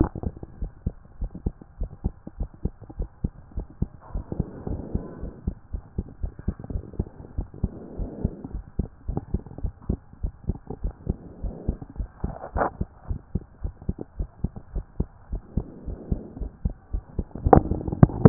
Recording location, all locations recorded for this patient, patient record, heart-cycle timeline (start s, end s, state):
pulmonary valve (PV)
pulmonary valve (PV)+tricuspid valve (TV)+tricuspid valve (TV)
#Age: Child
#Sex: Male
#Height: 123.0 cm
#Weight: 30.9 kg
#Pregnancy status: False
#Murmur: Absent
#Murmur locations: nan
#Most audible location: nan
#Systolic murmur timing: nan
#Systolic murmur shape: nan
#Systolic murmur grading: nan
#Systolic murmur pitch: nan
#Systolic murmur quality: nan
#Diastolic murmur timing: nan
#Diastolic murmur shape: nan
#Diastolic murmur grading: nan
#Diastolic murmur pitch: nan
#Diastolic murmur quality: nan
#Outcome: Normal
#Campaign: 2014 screening campaign
0.00	0.10	S1
0.10	0.24	systole
0.24	0.34	S2
0.34	0.60	diastole
0.60	0.70	S1
0.70	0.84	systole
0.84	0.94	S2
0.94	1.20	diastole
1.20	1.30	S1
1.30	1.44	systole
1.44	1.54	S2
1.54	1.80	diastole
1.80	1.90	S1
1.90	2.04	systole
2.04	2.14	S2
2.14	2.38	diastole
2.38	2.50	S1
2.50	2.64	systole
2.64	2.72	S2
2.72	2.98	diastole
2.98	3.08	S1
3.08	3.22	systole
3.22	3.32	S2
3.32	3.56	diastole
3.56	3.66	S1
3.66	3.80	systole
3.80	3.90	S2
3.90	4.14	diastole
4.14	4.24	S1
4.24	4.38	systole
4.38	4.46	S2
4.46	4.68	diastole
4.68	4.80	S1
4.80	4.94	systole
4.94	5.04	S2
5.04	5.22	diastole
5.22	5.32	S1
5.32	5.46	systole
5.46	5.56	S2
5.56	5.72	diastole
5.72	5.82	S1
5.82	5.96	systole
5.96	6.06	S2
6.06	6.22	diastole
6.22	6.32	S1
6.32	6.46	systole
6.46	6.54	S2
6.54	6.72	diastole
6.72	6.83	S1
6.83	6.98	systole
6.98	7.08	S2
7.08	7.36	diastole
7.36	7.48	S1
7.48	7.62	systole
7.62	7.72	S2
7.72	7.98	diastole
7.98	8.09	S1
8.09	8.22	systole
8.22	8.32	S2
8.32	8.52	diastole
8.52	8.63	S1
8.63	8.78	systole
8.78	8.88	S2
8.88	9.08	diastole
9.08	9.17	S1
9.17	9.32	systole
9.32	9.42	S2
9.42	9.62	diastole
9.62	9.72	S1
9.72	9.88	systole
9.88	9.98	S2
9.98	10.22	diastole
10.22	10.32	S1
10.32	10.48	systole
10.48	10.58	S2
10.58	10.82	diastole
10.82	10.92	S1
10.92	11.08	systole
11.08	11.16	S2
11.16	11.42	diastole
11.42	11.52	S1
11.52	11.68	systole
11.68	11.78	S2
11.78	11.98	diastole
11.98	12.08	S1
12.08	12.24	systole
12.24	12.34	S2
12.34	12.56	diastole
12.56	12.66	S1
12.66	12.80	systole
12.80	12.88	S2
12.88	13.08	diastole
13.08	13.20	S1
13.20	13.34	systole
13.34	13.44	S2
13.44	13.62	diastole
13.62	13.72	S1
13.72	13.88	systole
13.88	13.96	S2
13.96	14.18	diastole
14.18	14.28	S1
14.28	14.42	systole
14.42	14.52	S2
14.52	14.74	diastole
14.74	14.84	S1
14.84	14.98	systole
14.98	15.08	S2
15.08	15.32	diastole